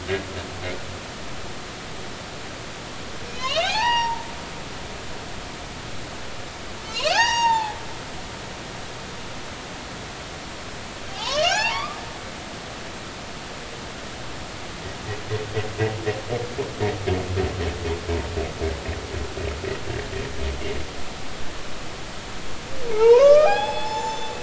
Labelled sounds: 3.3	4.3	humpback whale, 0.80 to 5.9 kHz
6.9	7.8	humpback whale, 0.80 to 6.7 kHz
11.1	12.0	humpback whale, 0.80 to 7.3 kHz
22.9	24.3	humpback whale, 0.80 to 7.1 kHz

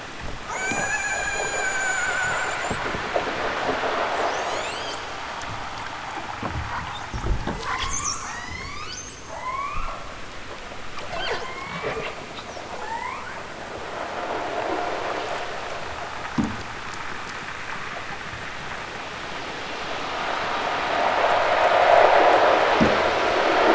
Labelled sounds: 0.4	2.9	killer whale, southern Alaska resident, 0.46 to 8.0 kHz
4.1	5.1	killer whale, southern Alaska resident, 1.6 to 8.0 kHz
7.5	10.0	killer whale, southern Alaska resident, 0.28 to 8.0 kHz
11.0	12.2	killer whale, southern Alaska resident, 0.37 to 8.0 kHz
12.7	13.3	killer whale, southern Alaska resident, 0.28 to 3.4 kHz

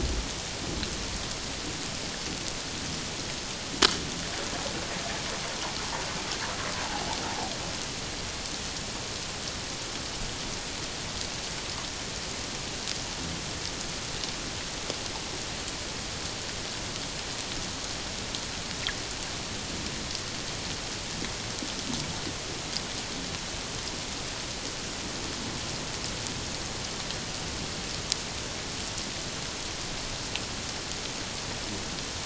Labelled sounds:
6.8	7.2	humpback whale, 0.78 to 1.0 kHz

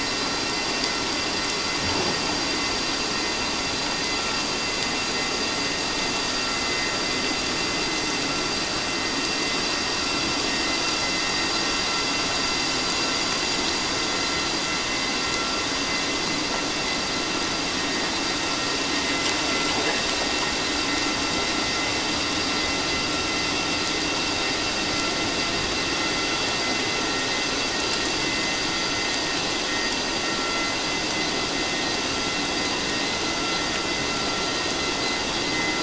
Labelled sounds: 28.2	28.5	vessel noise, 2.0 to 2.1 kHz

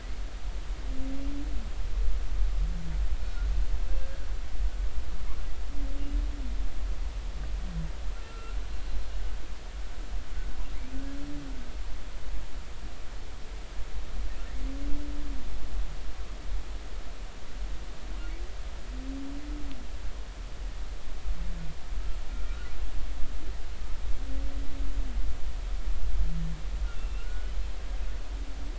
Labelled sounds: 8.1	8.6	humpback whale, 1.3 to 1.5 kHz
22.3	22.7	humpback whale, 1.3 to 1.5 kHz
26.8	27.3	humpback whale, 2.6 to 2.9 kHz
28.2	28.5	humpback whale, 1.3 to 1.5 kHz

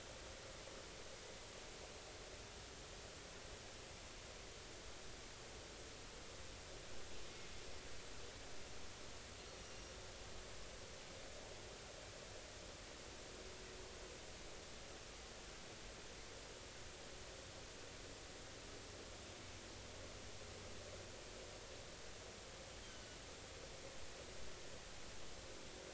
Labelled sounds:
9.6	9.9	Pacific white-sided dolphin, 2.7 to 2.9 kHz
22.8	23.1	Pacific white-sided dolphin, 2.9 to 3.3 kHz

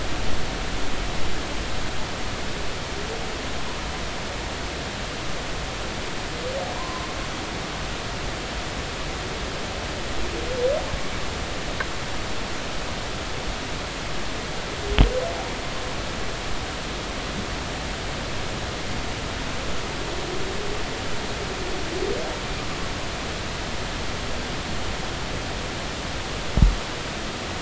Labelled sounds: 6.8	7.1	humpback whale, 0.93 to 1.2 kHz

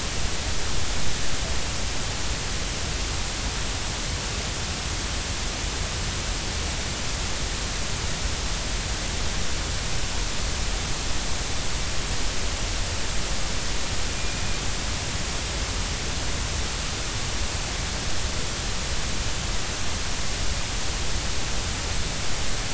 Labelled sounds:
14.2	14.4	killer whale, Bigg's (transient), 2.4 to 2.5 kHz

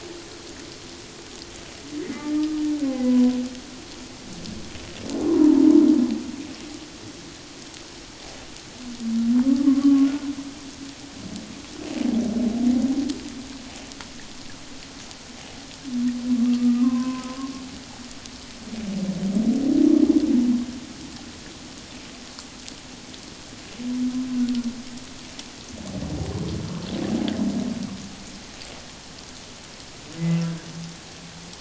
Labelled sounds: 2.0	2.6	humpback whale, 1.2 to 2.2 kHz
3.0	3.4	humpback whale, 0.94 to 1.0 kHz
5.3	5.6	humpback whale, 0.84 to 1.2 kHz
9.6	10.1	humpback whale, 1.0 to 1.2 kHz
16.4	17.5	humpback whale, 0.97 to 2.6 kHz

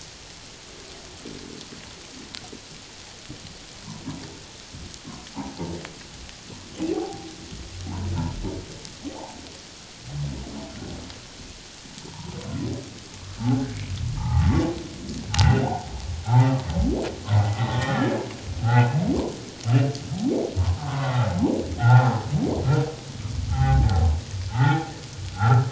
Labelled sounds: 5.3	5.7	humpback whale, 0.78 to 1.0 kHz
6.9	7.3	humpback whale, 0.78 to 0.88 kHz
9.1	9.4	humpback whale, 0.78 to 1.0 kHz
12.1	12.4	humpback whale, 0.84 to 1.0 kHz
13.4	14.5	humpback whale, 0.78 to 1.7 kHz
15.3	15.9	humpback whale, 0.78 to 2.0 kHz
17.3	19.0	humpback whale, 1.2 to 3.6 kHz
20.8	21.3	humpback whale, 0.94 to 2.1 kHz
21.8	22.1	humpback whale, 0.78 to 1.5 kHz
23.5	24.9	humpback whale, 0.78 to 2.1 kHz

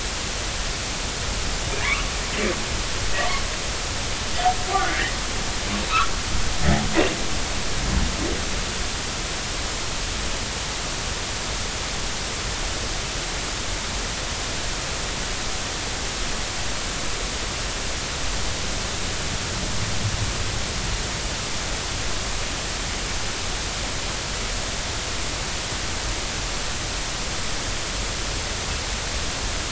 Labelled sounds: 3.2	3.4	humpback whale, 0.86 to 1.2 kHz
4.9	5.1	humpback whale, 1.6 to 2.1 kHz

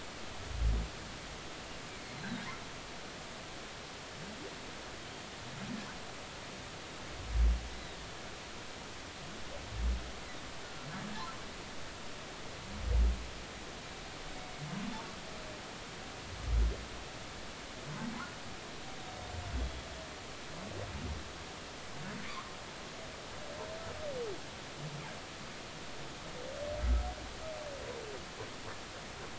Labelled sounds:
1.9	2.4	humpback whale, 2.1 to 4.3 kHz
19.5	19.9	humpback whale, 3.3 to 3.4 kHz

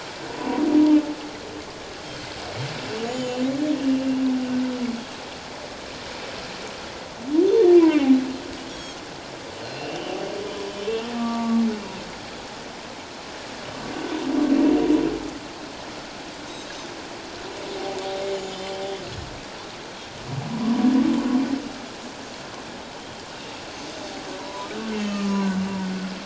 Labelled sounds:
3.0	3.4	Pacific white-sided dolphin, 6.7 to 7.2 kHz
3.1	4.1	humpback whale, 2.7 to 3.1 kHz
7.8	8.0	humpback whale, 2.0 to 2.4 kHz
8.7	9.0	Pacific white-sided dolphin, 3.1 to 6.8 kHz
9.6	9.9	Pacific white-sided dolphin, 4.1 to 4.4 kHz
9.7	10.2	humpback whale, 2.5 to 3.2 kHz
11.1	11.6	humpback whale, 0.88 to 1.3 kHz
24.4	24.7	humpback whale, 0.91 to 1.1 kHz
24.9	25.5	humpback whale, 1.1 to 2.8 kHz

